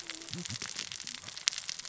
{"label": "biophony, cascading saw", "recorder": "SoundTrap 600 or HydroMoth"}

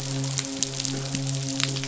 {"label": "biophony, midshipman", "recorder": "SoundTrap 500"}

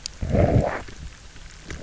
{"label": "biophony, low growl", "recorder": "SoundTrap 300"}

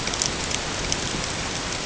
{"label": "ambient", "recorder": "HydroMoth"}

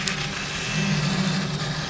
{"label": "anthrophony, boat engine", "recorder": "SoundTrap 500"}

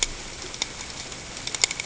{"label": "ambient", "recorder": "HydroMoth"}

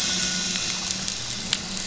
{"label": "anthrophony, boat engine", "recorder": "SoundTrap 500"}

